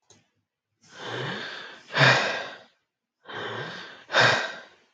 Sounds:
Sigh